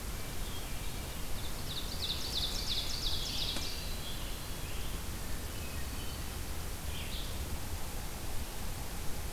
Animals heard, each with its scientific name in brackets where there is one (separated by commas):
Hermit Thrush (Catharus guttatus), Ovenbird (Seiurus aurocapilla), Red-eyed Vireo (Vireo olivaceus), Scarlet Tanager (Piranga olivacea)